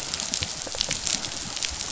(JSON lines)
{"label": "biophony, rattle response", "recorder": "SoundTrap 500"}